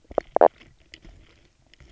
{"label": "biophony, knock croak", "recorder": "SoundTrap 300"}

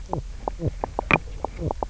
{"label": "biophony, knock croak", "recorder": "SoundTrap 300"}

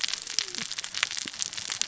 {"label": "biophony, cascading saw", "recorder": "SoundTrap 600 or HydroMoth"}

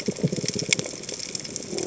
{"label": "biophony", "recorder": "HydroMoth"}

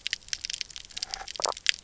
{"label": "biophony, stridulation", "recorder": "SoundTrap 300"}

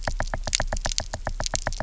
{"label": "biophony, knock", "recorder": "SoundTrap 300"}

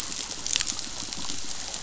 {"label": "biophony, pulse", "recorder": "SoundTrap 500"}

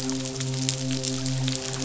{"label": "biophony, midshipman", "recorder": "SoundTrap 500"}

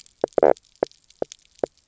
{"label": "biophony, knock croak", "recorder": "SoundTrap 300"}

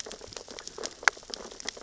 {"label": "biophony, sea urchins (Echinidae)", "recorder": "SoundTrap 600 or HydroMoth"}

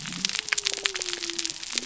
{"label": "biophony", "recorder": "SoundTrap 300"}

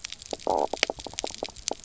{"label": "biophony, knock croak", "recorder": "SoundTrap 300"}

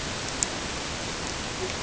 {"label": "ambient", "recorder": "HydroMoth"}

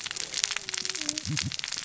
{"label": "biophony, cascading saw", "recorder": "SoundTrap 600 or HydroMoth"}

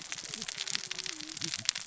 {"label": "biophony, cascading saw", "recorder": "SoundTrap 600 or HydroMoth"}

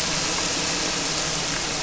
{"label": "anthrophony, boat engine", "recorder": "SoundTrap 300"}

